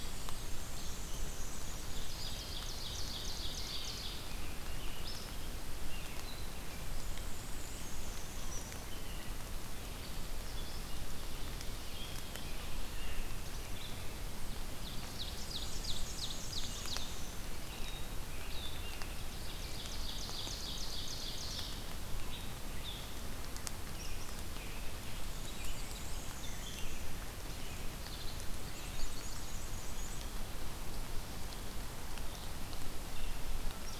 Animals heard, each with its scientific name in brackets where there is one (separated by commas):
unidentified call, Ovenbird (Seiurus aurocapilla), American Robin (Turdus migratorius), Black-and-white Warbler (Mniotilta varia), Rose-breasted Grosbeak (Pheucticus ludovicianus)